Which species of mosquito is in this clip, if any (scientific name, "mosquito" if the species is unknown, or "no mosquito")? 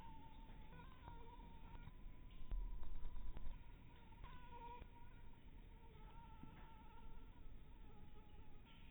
Anopheles harrisoni